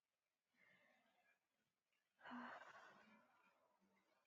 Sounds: Sigh